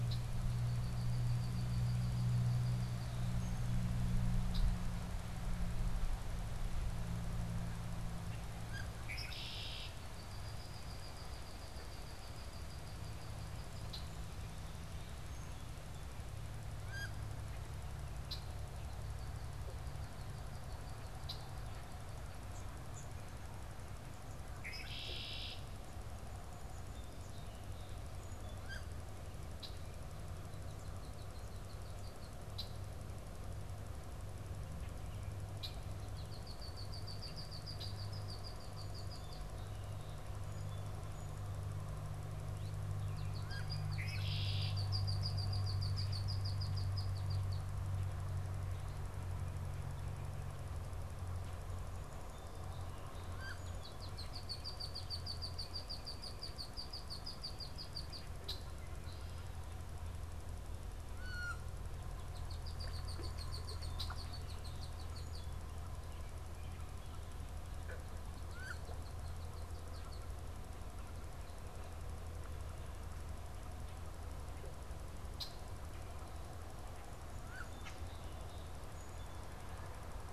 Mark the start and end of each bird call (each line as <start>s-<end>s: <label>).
0.0s-4.9s: Red-winged Blackbird (Agelaius phoeniceus)
8.6s-9.0s: Wood Duck (Aix sponsa)
9.0s-14.4s: Red-winged Blackbird (Agelaius phoeniceus)
16.8s-17.2s: Wood Duck (Aix sponsa)
17.9s-25.9s: Red-winged Blackbird (Agelaius phoeniceus)
28.7s-29.0s: Wood Duck (Aix sponsa)
29.5s-39.5s: Red-winged Blackbird (Agelaius phoeniceus)
42.9s-47.5s: Red-winged Blackbird (Agelaius phoeniceus)
43.5s-43.8s: Wood Duck (Aix sponsa)
53.2s-53.9s: Wood Duck (Aix sponsa)
53.3s-58.8s: Red-winged Blackbird (Agelaius phoeniceus)
61.0s-61.7s: Wood Duck (Aix sponsa)
62.1s-65.7s: Red-winged Blackbird (Agelaius phoeniceus)
68.4s-68.9s: Wood Duck (Aix sponsa)
69.0s-70.5s: Red-winged Blackbird (Agelaius phoeniceus)
75.3s-75.7s: Red-winged Blackbird (Agelaius phoeniceus)
77.2s-77.7s: Wood Duck (Aix sponsa)
77.3s-79.6s: Song Sparrow (Melospiza melodia)
77.8s-78.1s: unidentified bird